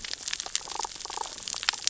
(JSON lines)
{"label": "biophony, damselfish", "recorder": "SoundTrap 600 or HydroMoth"}